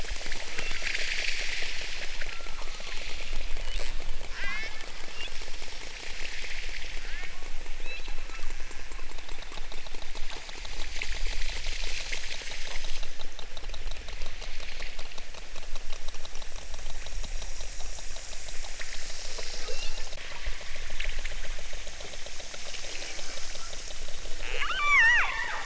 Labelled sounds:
0.4	0.9	killer whale, southern Alaska resident, 2.1 to 3.8 kHz
2.2	3.0	killer whale, southern Alaska resident, 0.64 to 1.6 kHz
4.3	5.4	killer whale, southern Alaska resident, 0.83 to 6.6 kHz
7.2	8.1	killer whale, southern Alaska resident, 0.18 to 4.4 kHz
19.4	20.1	killer whale, southern Alaska resident, 0.97 to 4.2 kHz
24.7	25.6	killer whale, southern Alaska resident, 0.41 to 8.0 kHz

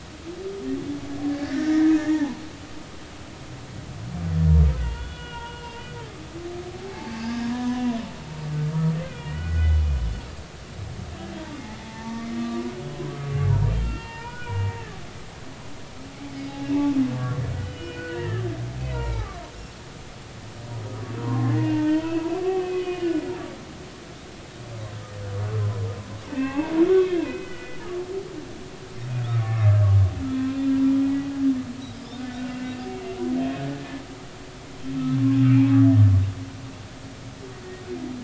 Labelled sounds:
1.4	2.4	humpback whale, 0.80 to 2.2 kHz
4.8	7.9	humpback whale, 0.80 to 3.4 kHz
9.1	9.8	humpback whale, 1.4 to 3.0 kHz
11.8	15.3	humpback whale, 0.83 to 4.6 kHz
16.6	19.3	humpback whale, 0.80 to 3.0 kHz
19.9	24.2	humpback whale, 0.80 to 3.0 kHz
26.3	26.7	humpback whale, 0.80 to 2.7 kHz
27.2	27.8	humpback whale, 1.4 to 3.1 kHz
29.4	29.8	humpback whale, 1.1 to 1.8 kHz
30.7	31.3	humpback whale, 0.86 to 2.0 kHz
32.1	32.7	humpback whale, 1.4 to 2.8 kHz
35.4	35.7	humpback whale, 2.1 to 2.8 kHz

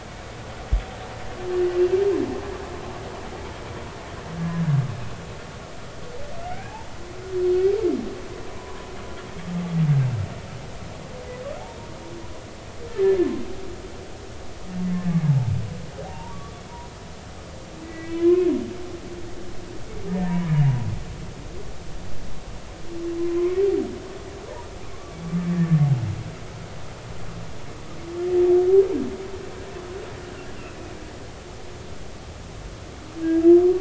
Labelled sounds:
1.5	1.8	humpback whale, 2.8 to 2.9 kHz
6.4	6.8	humpback whale, 1.4 to 2.7 kHz
8.5	8.9	humpback whale, 0.93 to 1.2 kHz
12.9	13.2	humpback whale, 1.7 to 1.8 kHz
16.1	16.9	humpback whale, 0.86 to 1.2 kHz
17.8	18.5	humpback whale, 0.96 to 2.6 kHz
20.1	20.6	humpback whale, 0.90 to 1.9 kHz
23.4	23.6	humpback whale, 0.99 to 2.3 kHz
24.9	25.2	humpback whale, 1.0 to 1.2 kHz
25.5	25.8	humpback whale, 1.6 to 1.9 kHz

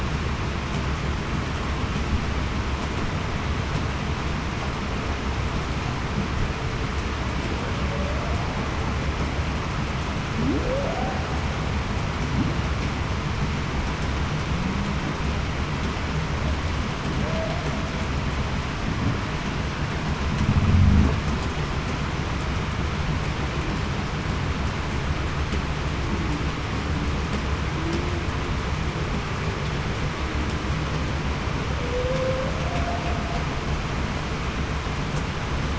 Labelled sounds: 10.5	10.8	humpback whale, 0.35 to 0.58 kHz
17.2	17.6	humpback whale, 0.54 to 0.75 kHz
31.8	33.0	humpback whale, 0.47 to 0.77 kHz

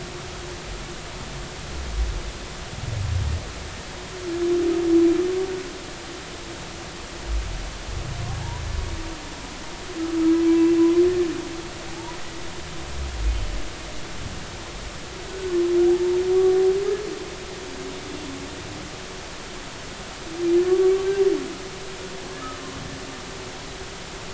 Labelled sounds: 11.9	12.2	humpback whale, 0.80 to 1.0 kHz
15.3	15.5	humpback whale, 1.4 to 1.6 kHz
20.7	20.9	humpback whale, 1.1 to 1.2 kHz

